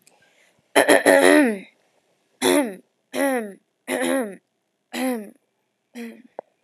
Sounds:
Throat clearing